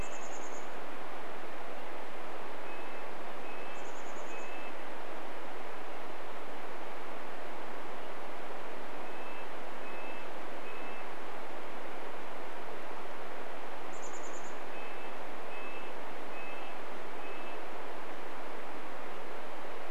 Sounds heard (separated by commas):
Red-breasted Nuthatch song, Chestnut-backed Chickadee call